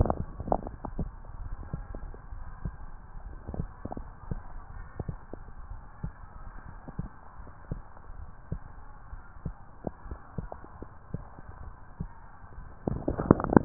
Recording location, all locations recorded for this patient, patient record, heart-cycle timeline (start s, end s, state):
tricuspid valve (TV)
pulmonary valve (PV)+tricuspid valve (TV)+mitral valve (MV)
#Age: Child
#Sex: Female
#Height: 128.0 cm
#Weight: 36.4 kg
#Pregnancy status: False
#Murmur: Present
#Murmur locations: mitral valve (MV)+pulmonary valve (PV)
#Most audible location: pulmonary valve (PV)
#Systolic murmur timing: Holosystolic
#Systolic murmur shape: Plateau
#Systolic murmur grading: I/VI
#Systolic murmur pitch: Low
#Systolic murmur quality: Harsh
#Diastolic murmur timing: nan
#Diastolic murmur shape: nan
#Diastolic murmur grading: nan
#Diastolic murmur pitch: nan
#Diastolic murmur quality: nan
#Outcome: Abnormal
#Campaign: 2015 screening campaign
0.00	2.16	unannotated
2.16	2.27	systole
2.27	2.40	S1
2.40	2.59	systole
2.59	2.72	S2
2.72	3.11	diastole
3.11	3.32	S1
3.32	3.52	systole
3.52	3.69	S2
3.69	3.94	diastole
3.94	4.06	S1
4.06	4.28	systole
4.28	4.40	S2
4.40	4.69	diastole
4.69	4.86	S1
4.86	5.02	systole
5.02	5.16	S2
5.16	5.67	diastole
5.67	5.80	S1
5.80	6.00	systole
6.00	6.14	S2
6.14	6.63	diastole
6.63	6.79	S1
6.79	6.94	systole
6.94	7.10	S2
7.10	7.35	diastole
7.35	7.52	S1
7.52	7.66	systole
7.66	7.84	S2
7.84	8.08	diastole
8.08	8.25	S1
8.25	8.48	systole
8.48	8.64	S2
8.64	9.06	diastole
9.06	9.21	S1
9.21	9.39	systole
9.39	9.55	S2
9.55	13.65	unannotated